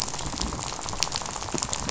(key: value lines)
label: biophony, rattle
recorder: SoundTrap 500